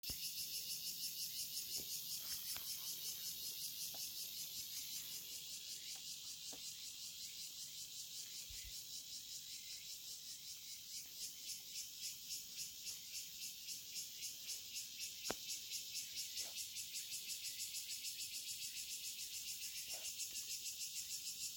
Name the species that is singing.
Cryptotympana takasagona